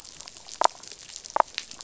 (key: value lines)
label: biophony, damselfish
recorder: SoundTrap 500